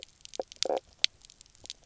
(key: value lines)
label: biophony, knock croak
recorder: SoundTrap 300